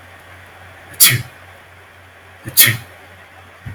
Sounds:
Sneeze